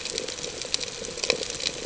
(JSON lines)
{"label": "ambient", "recorder": "HydroMoth"}